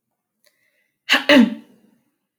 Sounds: Throat clearing